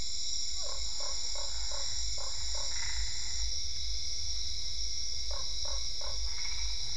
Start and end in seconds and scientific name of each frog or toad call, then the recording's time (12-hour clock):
0.2	2.9	Boana lundii
2.3	3.5	Boana albopunctata
5.0	6.4	Boana lundii
6.1	6.9	Boana albopunctata
7:30pm